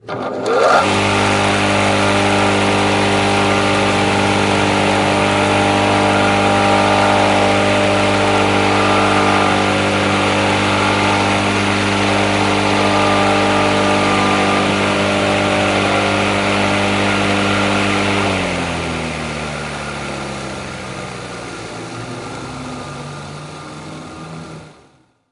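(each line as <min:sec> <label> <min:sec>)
0:00.2 A lawn mower engine hums steadily with a rhythmic and consistent pattern. 0:20.5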